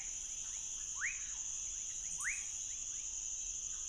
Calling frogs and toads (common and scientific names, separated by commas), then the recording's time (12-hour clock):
rufous frog (Leptodactylus fuscus)
12:00am